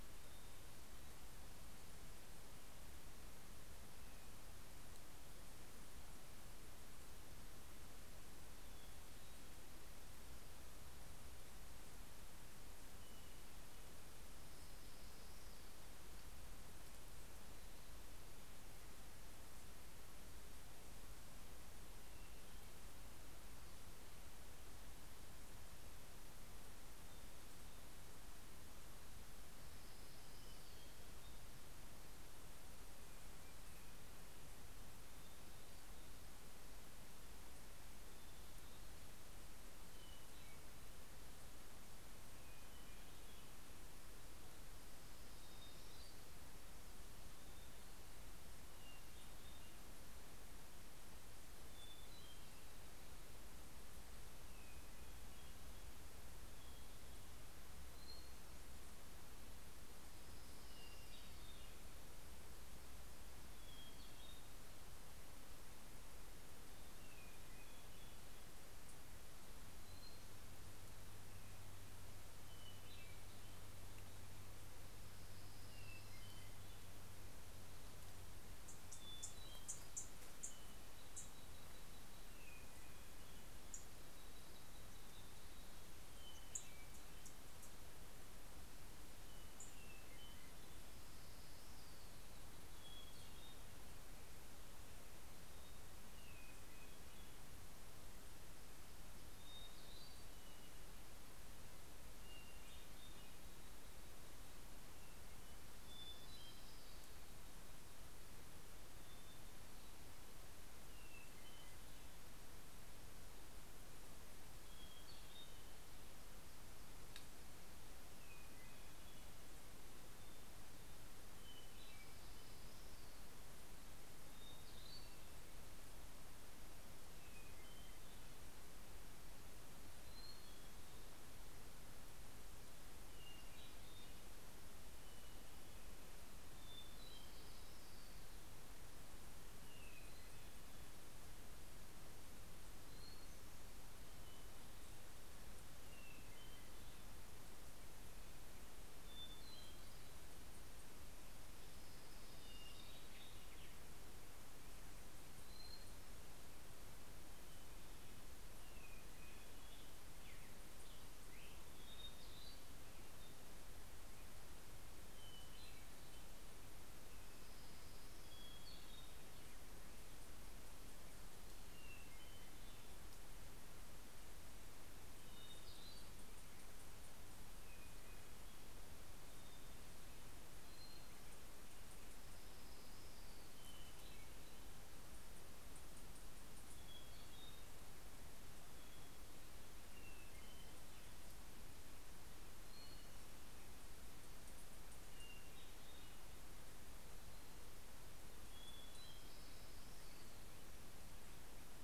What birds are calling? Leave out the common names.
Catharus guttatus, Leiothlypis celata, Junco hyemalis, Pheucticus melanocephalus